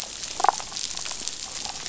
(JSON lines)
{"label": "biophony, damselfish", "recorder": "SoundTrap 500"}